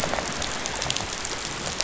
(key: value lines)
label: biophony, rattle response
recorder: SoundTrap 500